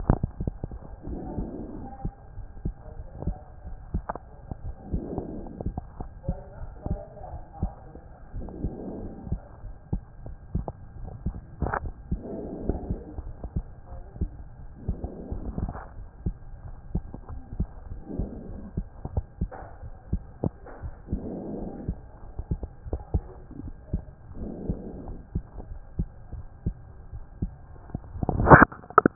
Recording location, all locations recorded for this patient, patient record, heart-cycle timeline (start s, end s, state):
aortic valve (AV)
aortic valve (AV)+pulmonary valve (PV)+tricuspid valve (TV)+mitral valve (MV)
#Age: Child
#Sex: Male
#Height: 121.0 cm
#Weight: 20.7 kg
#Pregnancy status: False
#Murmur: Absent
#Murmur locations: nan
#Most audible location: nan
#Systolic murmur timing: nan
#Systolic murmur shape: nan
#Systolic murmur grading: nan
#Systolic murmur pitch: nan
#Systolic murmur quality: nan
#Diastolic murmur timing: nan
#Diastolic murmur shape: nan
#Diastolic murmur grading: nan
#Diastolic murmur pitch: nan
#Diastolic murmur quality: nan
#Outcome: Normal
#Campaign: 2014 screening campaign
0.00	22.80	unannotated
22.80	22.90	diastole
22.90	23.00	S1
23.00	23.12	systole
23.12	23.24	S2
23.24	23.62	diastole
23.62	23.74	S1
23.74	23.92	systole
23.92	24.04	S2
24.04	24.40	diastole
24.40	24.52	S1
24.52	24.68	systole
24.68	24.78	S2
24.78	25.06	diastole
25.06	25.18	S1
25.18	25.34	systole
25.34	25.44	S2
25.44	25.70	diastole
25.70	25.82	S1
25.82	25.98	systole
25.98	26.08	S2
26.08	26.34	diastole
26.34	26.46	S1
26.46	26.64	systole
26.64	26.74	S2
26.74	27.14	diastole
27.14	27.24	S1
27.24	27.40	systole
27.40	27.52	S2
27.52	27.71	diastole
27.71	29.15	unannotated